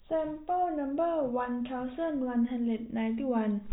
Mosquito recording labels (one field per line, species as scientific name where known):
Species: no mosquito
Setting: cup